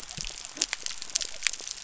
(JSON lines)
{"label": "biophony", "recorder": "SoundTrap 300"}